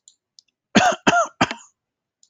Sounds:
Cough